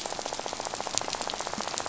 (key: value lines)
label: biophony, rattle
recorder: SoundTrap 500